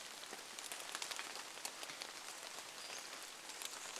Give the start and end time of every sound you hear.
[0, 4] rain
[2, 4] Pacific-slope Flycatcher call

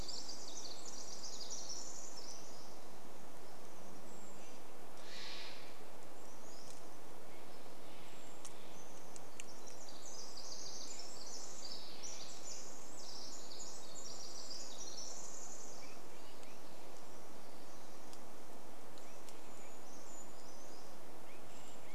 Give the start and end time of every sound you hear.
[0, 4] Pacific Wren song
[4, 6] Brown Creeper call
[4, 10] Steller's Jay call
[6, 8] Pacific-slope Flycatcher song
[8, 10] Brown Creeper call
[8, 16] Pacific Wren song
[14, 22] unidentified sound
[18, 22] Brown Creeper song
[18, 22] Pacific Wren song

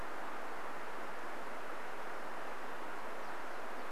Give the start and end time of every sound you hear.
[2, 4] warbler song

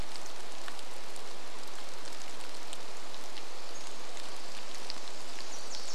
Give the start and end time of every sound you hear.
[0, 6] rain
[2, 4] Pacific-slope Flycatcher call
[4, 6] Wilson's Warbler song

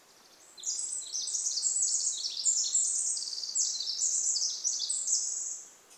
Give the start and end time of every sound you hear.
[0, 6] Pacific Wren song

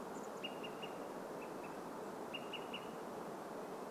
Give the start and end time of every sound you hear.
[0, 2] Chestnut-backed Chickadee call
[0, 4] Olive-sided Flycatcher call

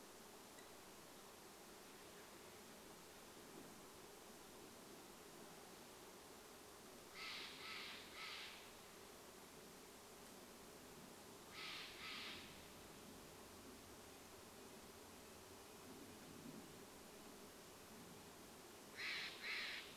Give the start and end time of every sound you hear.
[0, 2] unidentified sound
[6, 14] Steller's Jay call
[14, 20] Red-breasted Nuthatch song
[18, 20] Steller's Jay call

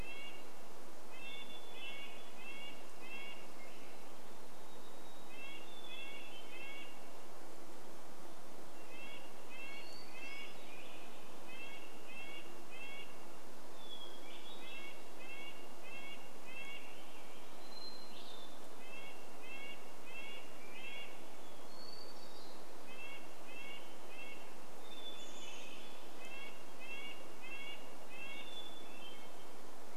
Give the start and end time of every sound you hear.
[0, 26] Hermit Thrush song
[0, 30] Red-breasted Nuthatch song
[2, 4] Swainson's Thrush song
[4, 6] Varied Thrush song
[10, 12] Swainson's Thrush song
[12, 14] insect buzz
[16, 18] Swainson's Thrush song
[20, 22] Swainson's Thrush song
[24, 26] Chestnut-backed Chickadee call
[24, 26] Swainson's Thrush song
[28, 30] Hermit Thrush song

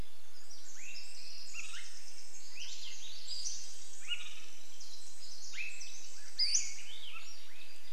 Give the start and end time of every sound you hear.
[0, 8] Pacific Wren song
[0, 8] Swainson's Thrush call
[2, 4] Pacific-slope Flycatcher call
[2, 4] Swainson's Thrush song
[6, 8] Pacific-slope Flycatcher call
[6, 8] Swainson's Thrush song
[6, 8] insect buzz

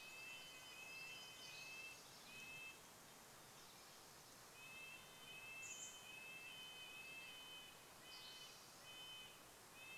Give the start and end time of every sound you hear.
[0, 2] Pacific Wren song
[0, 2] Spotted Towhee song
[0, 2] warbler song
[0, 10] Red-breasted Nuthatch song
[4, 6] Chestnut-backed Chickadee call
[8, 10] Spotted Towhee song

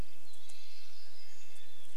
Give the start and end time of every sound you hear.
[0, 2] Hermit Thrush call
[0, 2] Red-breasted Nuthatch song
[0, 2] unidentified sound
[0, 2] warbler song

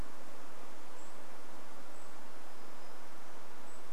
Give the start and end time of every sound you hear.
[0, 4] Golden-crowned Kinglet call
[2, 4] unidentified sound

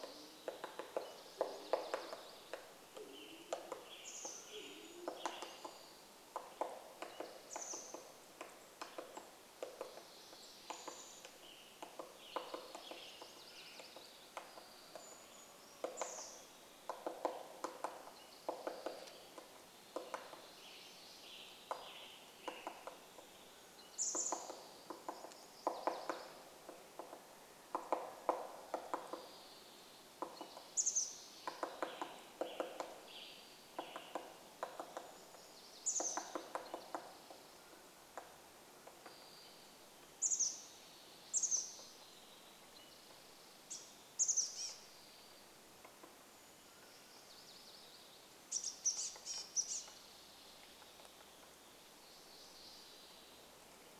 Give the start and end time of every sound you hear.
[0, 2] Band-tailed Pigeon call
[0, 2] Townsend's Solitaire call
[0, 4] MacGillivray's Warbler song
[0, 42] woodpecker drumming
[2, 6] Band-tailed Pigeon song
[2, 6] Western Tanager song
[4, 6] Brown Creeper song
[4, 6] Mountain Quail call
[4, 8] Chestnut-backed Chickadee call
[6, 8] Spotted Towhee song
[8, 10] unidentified bird chip note
[10, 12] Chestnut-backed Chickadee call
[10, 12] unidentified sound
[10, 14] Western Tanager song
[12, 14] MacGillivray's Warbler song
[12, 14] Spotted Towhee song
[14, 16] Brown Creeper song
[16, 18] Chestnut-backed Chickadee call
[18, 20] Spotted Towhee song
[20, 24] Western Tanager song
[22, 24] Mountain Quail call
[24, 26] Chestnut-backed Chickadee call
[24, 28] MacGillivray's Warbler song
[28, 30] unidentified sound
[30, 32] Chestnut-backed Chickadee call
[30, 32] Spotted Towhee song
[32, 36] Western Tanager song
[34, 38] Chestnut-backed Chickadee call
[34, 38] MacGillivray's Warbler song
[36, 38] Mountain Quail call
[36, 38] Spotted Towhee song
[38, 40] unidentified sound
[40, 46] Chestnut-backed Chickadee call
[42, 44] Spotted Towhee song
[44, 46] woodpecker drumming
[46, 48] Brown Creeper song
[46, 48] MacGillivray's Warbler song
[46, 48] Mountain Quail call
[48, 50] Chestnut-backed Chickadee call
[48, 52] woodpecker drumming
[50, 54] unidentified sound

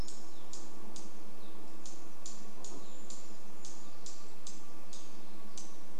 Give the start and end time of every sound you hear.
[0, 4] Evening Grosbeak call
[0, 6] unidentified bird chip note
[4, 6] vehicle engine

